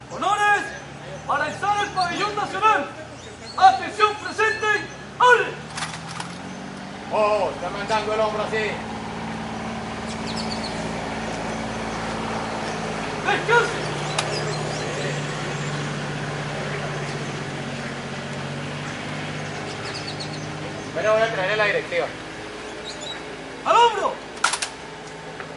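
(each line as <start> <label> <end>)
0.0 Male soldiers are speaking during a military drill. 9.8
9.8 A military truck is driving past on a nearby road. 21.2
21.3 A soldier is speaking clearly during a drill. 25.6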